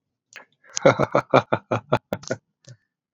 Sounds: Laughter